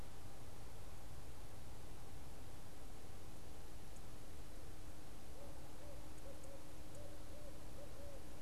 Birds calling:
Barred Owl (Strix varia)

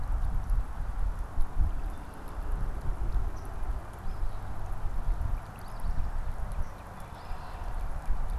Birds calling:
Eastern Phoebe (Sayornis phoebe)
Red-winged Blackbird (Agelaius phoeniceus)
Northern Cardinal (Cardinalis cardinalis)

